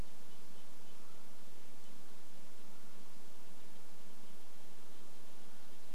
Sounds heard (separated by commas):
Mountain Quail call, Red-breasted Nuthatch song